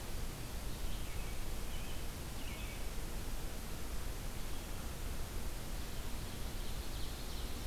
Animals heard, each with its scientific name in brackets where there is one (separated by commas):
Ovenbird (Seiurus aurocapilla), American Robin (Turdus migratorius)